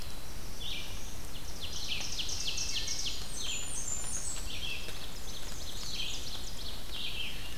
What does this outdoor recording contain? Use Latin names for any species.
Setophaga caerulescens, Vireo olivaceus, Seiurus aurocapilla, Hylocichla mustelina, Setophaga fusca, Mniotilta varia